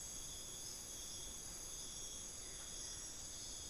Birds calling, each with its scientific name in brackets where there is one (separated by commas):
Buff-throated Woodcreeper (Xiphorhynchus guttatus)